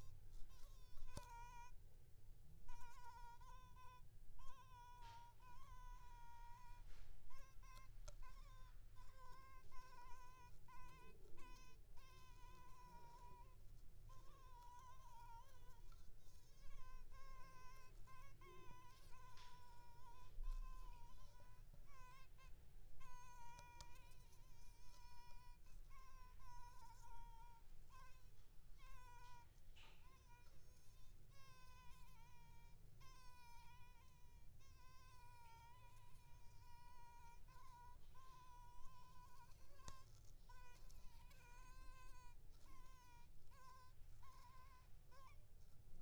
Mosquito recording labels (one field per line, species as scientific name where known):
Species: Anopheles squamosus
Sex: female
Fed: unfed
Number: one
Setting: cup